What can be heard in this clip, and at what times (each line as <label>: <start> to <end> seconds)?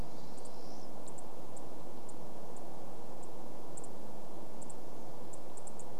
Pine Siskin call: 0 to 2 seconds
unidentified bird chip note: 0 to 6 seconds